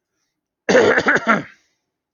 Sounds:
Throat clearing